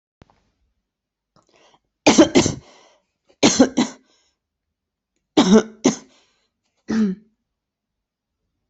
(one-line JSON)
{"expert_labels": [{"quality": "good", "cough_type": "dry", "dyspnea": false, "wheezing": false, "stridor": false, "choking": false, "congestion": false, "nothing": true, "diagnosis": "healthy cough", "severity": "pseudocough/healthy cough"}], "age": 35, "gender": "female", "respiratory_condition": false, "fever_muscle_pain": true, "status": "symptomatic"}